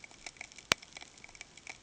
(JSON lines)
{"label": "ambient", "recorder": "HydroMoth"}